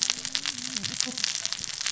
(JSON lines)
{"label": "biophony, cascading saw", "recorder": "SoundTrap 600 or HydroMoth"}